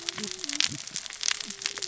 {"label": "biophony, cascading saw", "recorder": "SoundTrap 600 or HydroMoth"}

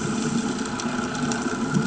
{"label": "anthrophony, boat engine", "recorder": "HydroMoth"}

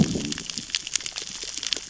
{"label": "biophony, growl", "recorder": "SoundTrap 600 or HydroMoth"}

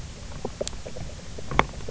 {"label": "biophony, knock croak", "recorder": "SoundTrap 300"}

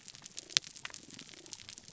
{"label": "biophony, damselfish", "recorder": "SoundTrap 300"}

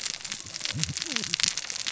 {"label": "biophony, cascading saw", "recorder": "SoundTrap 600 or HydroMoth"}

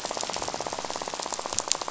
{"label": "biophony, rattle", "recorder": "SoundTrap 500"}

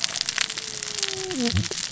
{"label": "biophony, cascading saw", "recorder": "SoundTrap 600 or HydroMoth"}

